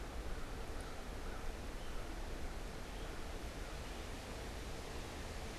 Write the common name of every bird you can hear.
American Crow, Red-eyed Vireo